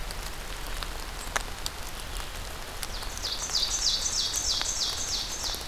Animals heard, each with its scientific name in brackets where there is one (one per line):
Ovenbird (Seiurus aurocapilla)